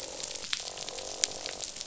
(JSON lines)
{"label": "biophony, croak", "recorder": "SoundTrap 500"}